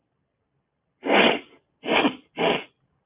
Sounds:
Sniff